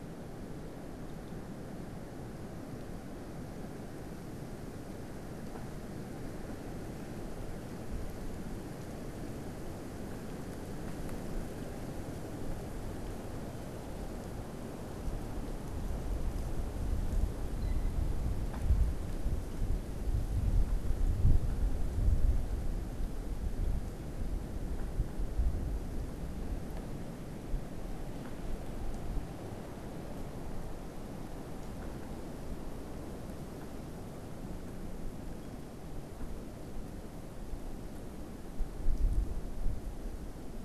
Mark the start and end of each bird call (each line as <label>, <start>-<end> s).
unidentified bird, 17.3-18.1 s